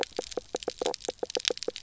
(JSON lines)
{"label": "biophony, knock croak", "recorder": "SoundTrap 300"}